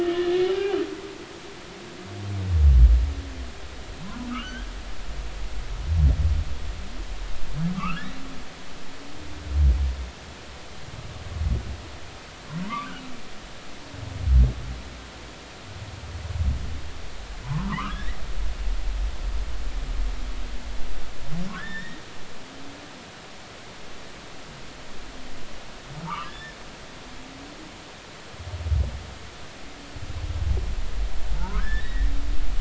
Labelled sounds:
0.0	0.8	humpback whale, 0.80 to 2.5 kHz
4.0	4.7	humpback whale, 0.93 to 3.4 kHz
7.7	8.2	humpback whale, 1.0 to 2.9 kHz
12.6	12.9	humpback whale, 0.90 to 1.3 kHz
17.4	18.2	humpback whale, 0.83 to 2.0 kHz
21.5	22.0	humpback whale, 1.2 to 3.8 kHz
26.0	26.6	humpback whale, 0.86 to 1.9 kHz
31.3	32.1	humpback whale, 0.83 to 2.0 kHz

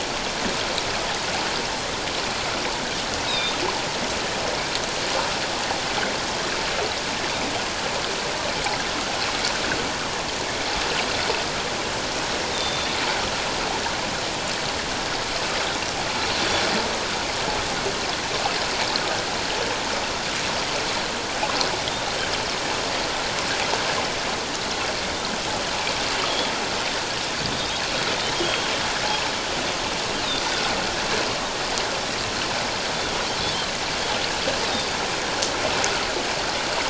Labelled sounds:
3.3	3.5	Pacific white-sided dolphin, 3.5 to 5.2 kHz
10.4	10.7	Pacific white-sided dolphin, 2.0 to 2.4 kHz
12.5	12.9	Pacific white-sided dolphin, 3.5 to 3.8 kHz
27.5	27.8	Pacific white-sided dolphin, 3.6 to 3.9 kHz
28.3	28.7	Pacific white-sided dolphin, 3.2 to 3.3 kHz

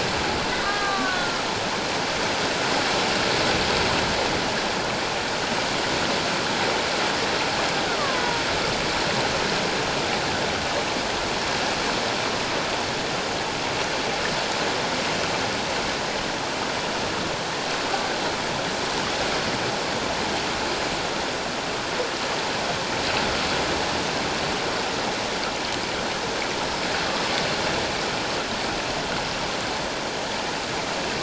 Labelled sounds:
0.6	1.5	killer whale, Bigg's (transient), 1.1 to 4.1 kHz
8.0	8.4	killer whale, Bigg's (transient), 0.91 to 1.3 kHz

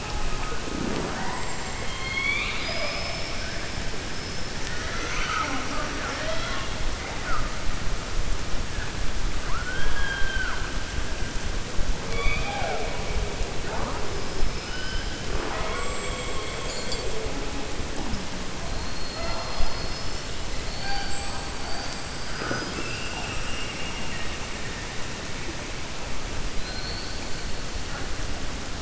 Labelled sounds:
1.8	3.5	killer whale, 0.62 to 5.4 kHz

